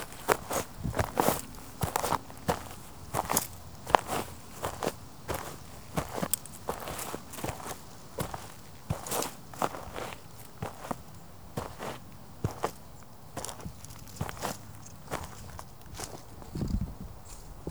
What is the person doing?
walking